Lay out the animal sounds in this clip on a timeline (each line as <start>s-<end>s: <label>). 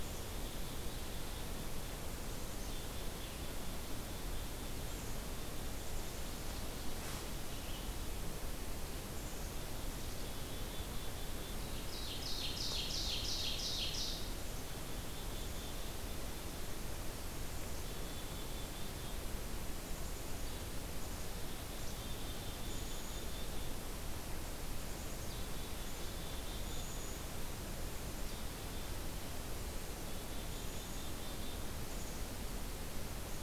0.0s-7.4s: Black-capped Chickadee (Poecile atricapillus)
9.1s-11.8s: Black-capped Chickadee (Poecile atricapillus)
11.6s-14.4s: Ovenbird (Seiurus aurocapilla)
14.1s-16.9s: Black-capped Chickadee (Poecile atricapillus)
17.2s-19.3s: Black-capped Chickadee (Poecile atricapillus)
19.8s-23.8s: Black-capped Chickadee (Poecile atricapillus)
24.6s-27.3s: Black-capped Chickadee (Poecile atricapillus)
27.9s-29.0s: Black-capped Chickadee (Poecile atricapillus)
30.0s-32.7s: Black-capped Chickadee (Poecile atricapillus)